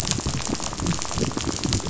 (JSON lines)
{"label": "biophony, rattle", "recorder": "SoundTrap 500"}